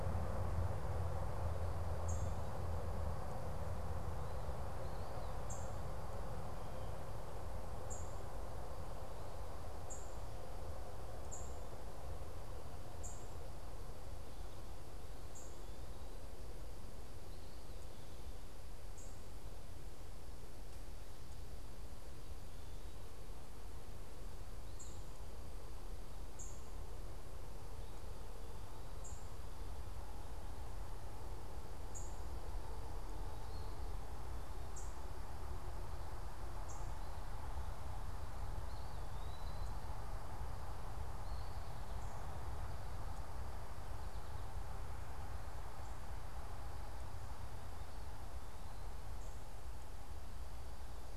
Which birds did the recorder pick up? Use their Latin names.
unidentified bird, Contopus virens